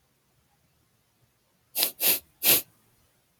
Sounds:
Sniff